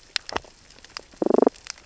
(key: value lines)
label: biophony, damselfish
recorder: SoundTrap 600 or HydroMoth